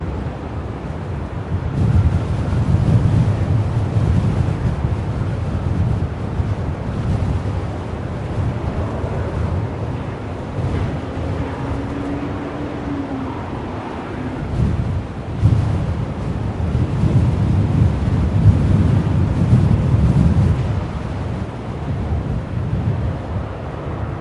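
Intermittent gusts of wind blow softly, rustling through the surroundings. 1.4 - 8.0
A vehicle passes by, momentarily amplifying the engine noise before it fades. 8.5 - 14.7
Intermittent gusts of wind blow softly, rustling through the surroundings. 14.3 - 23.9

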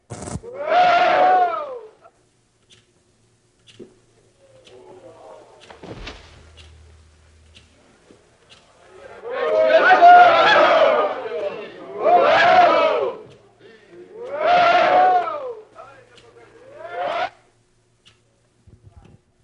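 A buzzing sound of a crowd gathering. 0.1 - 0.4
A group of men say "woah" in a rising tone. 0.5 - 1.8
A clock ticking faintly in a quiet indoor environment. 1.9 - 9.2
A group of men chanting and cheering loudly with rising intensity. 9.2 - 11.6
A group of men say "woah" in a rising tone. 11.9 - 13.2
A clock ticking faintly in a quiet indoor environment. 13.3 - 14.1
A group of men say "woah" in a rising tone. 14.1 - 15.6
A clock ticking faintly in a quiet indoor environment. 15.7 - 16.8
A group of men abruptly say a short, faint "woah." 16.8 - 17.3
A clock ticking faintly in a quiet indoor environment. 17.4 - 19.4

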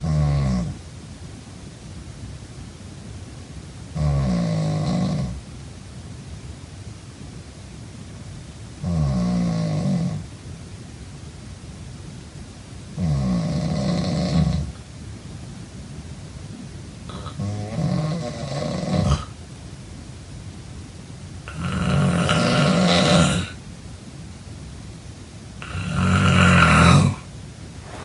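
Snoring. 0.0 - 0.9
Noise. 0.0 - 28.0
Snoring. 3.9 - 5.5
Snoring. 8.8 - 10.4
Snoring. 13.0 - 14.8
Snoring. 17.2 - 19.3
Snoring. 21.6 - 23.5
Snoring. 25.6 - 27.3

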